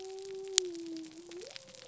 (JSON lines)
{"label": "biophony", "recorder": "SoundTrap 300"}